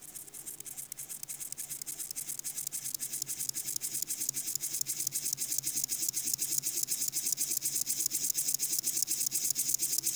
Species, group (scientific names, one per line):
Chorthippus apricarius
Orthoptera